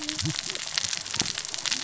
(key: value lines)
label: biophony, cascading saw
recorder: SoundTrap 600 or HydroMoth